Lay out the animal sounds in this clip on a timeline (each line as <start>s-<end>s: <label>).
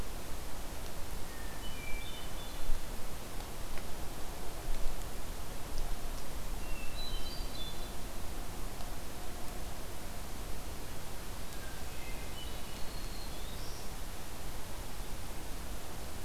1.2s-2.8s: Hermit Thrush (Catharus guttatus)
6.7s-8.0s: Hermit Thrush (Catharus guttatus)
11.6s-12.8s: Hermit Thrush (Catharus guttatus)
12.6s-13.9s: Black-throated Green Warbler (Setophaga virens)